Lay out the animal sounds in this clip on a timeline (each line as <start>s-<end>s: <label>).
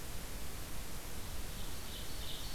1.2s-2.5s: Ovenbird (Seiurus aurocapilla)